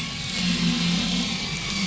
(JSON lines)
{"label": "anthrophony, boat engine", "recorder": "SoundTrap 500"}